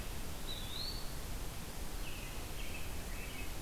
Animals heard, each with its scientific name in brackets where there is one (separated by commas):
Eastern Wood-Pewee (Contopus virens), American Robin (Turdus migratorius)